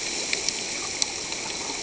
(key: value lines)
label: ambient
recorder: HydroMoth